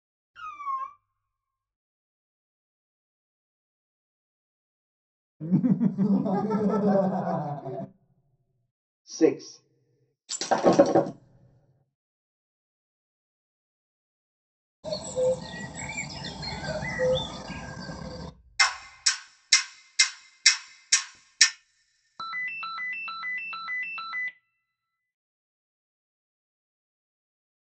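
At 0.34 seconds, a cat meows. After that, at 5.4 seconds, someone chuckles. Later, at 9.12 seconds, a voice says "six." Next, at 10.28 seconds, glass shatters. Following that, at 14.83 seconds, a bird can be heard. After that, at 18.59 seconds, there is the sound of a clock. Finally, at 22.18 seconds, a ringtone is heard.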